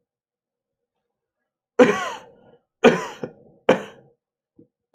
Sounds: Cough